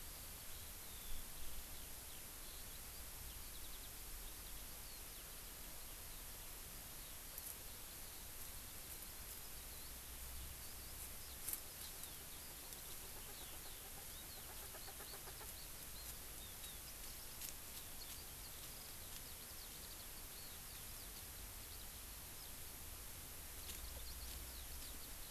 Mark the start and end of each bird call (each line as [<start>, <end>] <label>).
[0.00, 21.90] Eurasian Skylark (Alauda arvensis)
[11.80, 15.50] Erckel's Francolin (Pternistis erckelii)